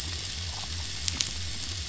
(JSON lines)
{"label": "biophony", "recorder": "SoundTrap 500"}